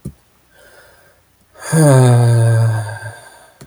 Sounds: Sigh